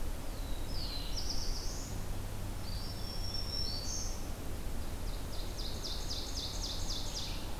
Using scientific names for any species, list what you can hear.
Setophaga caerulescens, Contopus virens, Setophaga virens, Seiurus aurocapilla, Vireo olivaceus